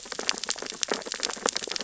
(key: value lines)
label: biophony, sea urchins (Echinidae)
recorder: SoundTrap 600 or HydroMoth